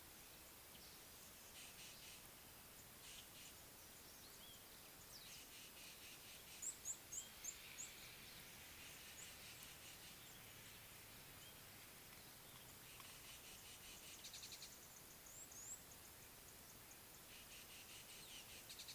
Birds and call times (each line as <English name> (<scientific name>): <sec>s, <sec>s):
Red-cheeked Cordonbleu (Uraeginthus bengalus): 7.2s
Rattling Cisticola (Cisticola chiniana): 13.5s, 17.9s